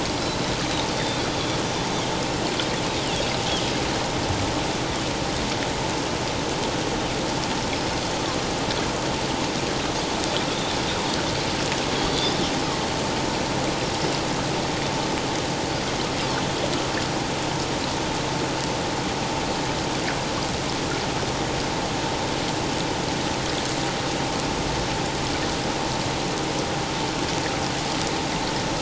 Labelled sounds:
12.0	12.4	Pacific white-sided dolphin, 3.4 to 4.8 kHz

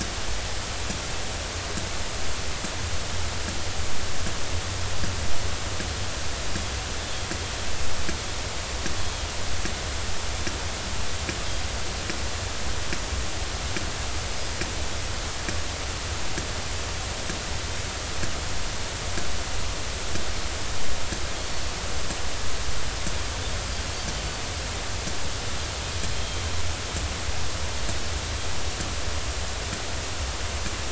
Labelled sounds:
14.3	14.6	Pacific white-sided dolphin, 4.9 to 5.1 kHz
21.4	21.8	Pacific white-sided dolphin, 4.3 to 4.5 kHz
26.1	26.4	Pacific white-sided dolphin, 3.1 to 3.3 kHz

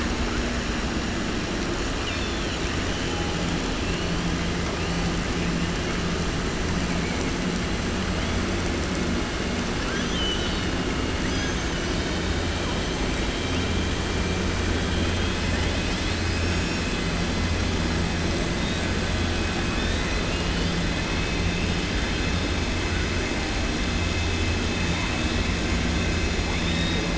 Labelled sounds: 1.9	2.6	killer whale, southern resident, 2.4 to 5.3 kHz
9.8	10.7	killer whale, southern resident, 1.4 to 6.6 kHz

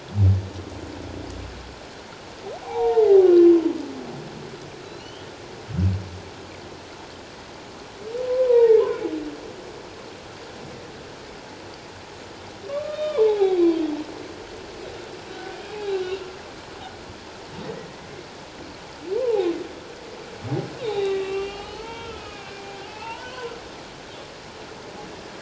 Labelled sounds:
2.6	3.3	humpback whale, 0.78 to 1.1 kHz
4.8	5.3	humpback whale, 2.8 to 4.5 kHz
8.3	8.8	humpback whale, 0.81 to 2.0 kHz
12.7	13.6	humpback whale, 0.78 to 3.8 kHz
15.3	16.0	humpback whale, 0.78 to 2.6 kHz
19.2	19.5	humpback whale, 0.78 to 1.1 kHz
20.8	22.5	humpback whale, 0.78 to 4.5 kHz
22.9	23.5	humpback whale, 0.81 to 3.1 kHz

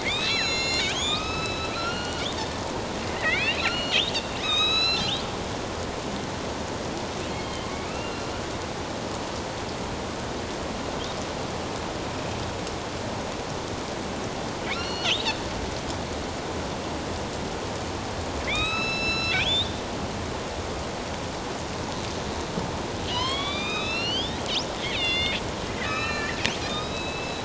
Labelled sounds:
0.0	2.3	killer whale, northern resident, A clan, AB subclan, 1.0 to 8.0 kHz
3.1	4.0	killer whale, northern resident, A clan, AB subclan, 1.8 to 4.6 kHz
4.4	5.2	killer whale, northern resident, A clan, AB subclan, 1.1 to 6.8 kHz
7.3	8.4	killer whale, northern resident, A clan, AB subclan, 2.0 to 4.2 kHz
14.7	15.2	killer whale, northern resident, A clan, AB subclan, 2.1 to 5.8 kHz
18.5	19.8	killer whale, northern resident, A clan, AB subclan, 1.2 to 8.0 kHz
23.1	24.4	killer whale, northern resident, A clan, AB subclan, 0.94 to 6.5 kHz
24.9	25.4	killer whale, northern resident, A clan, AB subclan, 2.0 to 5.1 kHz
25.7	27.4	killer whale, northern resident, A clan, AB subclan, 1.1 to 4.2 kHz

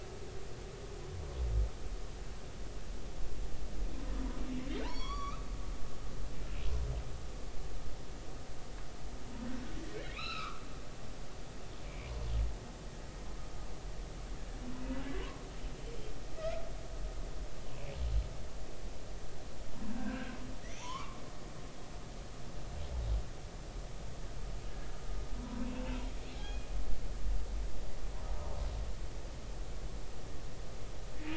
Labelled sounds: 4.8	5.5	humpback whale, 0.83 to 5.8 kHz
10.0	10.6	humpback whale, 1.1 to 5.5 kHz
11.9	12.1	humpback whale, 2.1 to 2.5 kHz
19.9	21.2	humpback whale, 0.86 to 6.0 kHz
26.3	26.7	humpback whale, 0.93 to 3.4 kHz

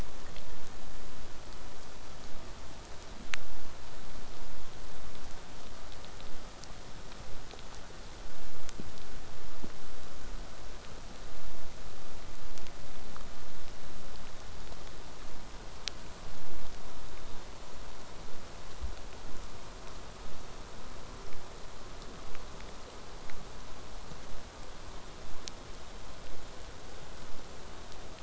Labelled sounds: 23.2	28.2	vessel noise, 0 to 8.0 kHz

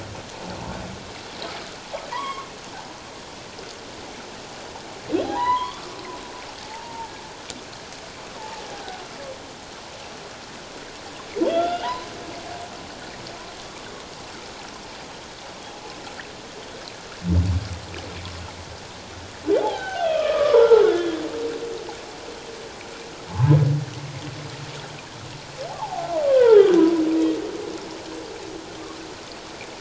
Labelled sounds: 2.1	2.5	humpback whale, 0.88 to 3.4 kHz
5.2	5.9	humpback whale, 0.78 to 3.5 kHz
6.6	7.1	humpback whale, 0.81 to 0.97 kHz
8.4	9.0	humpback whale, 0.78 to 1.6 kHz
11.4	12.1	humpback whale, 0.84 to 3.6 kHz
19.6	21.2	humpback whale, 0.78 to 3.7 kHz
23.3	23.6	humpback whale, 0.81 to 1.2 kHz
25.7	26.7	humpback whale, 0.78 to 1.7 kHz

